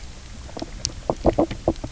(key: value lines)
label: biophony, knock croak
recorder: SoundTrap 300